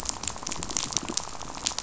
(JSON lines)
{"label": "biophony, rattle", "recorder": "SoundTrap 500"}